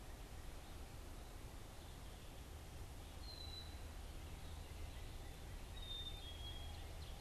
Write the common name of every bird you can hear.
Black-capped Chickadee, Northern Cardinal, Ovenbird